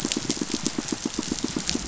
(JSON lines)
{"label": "biophony, pulse", "recorder": "SoundTrap 500"}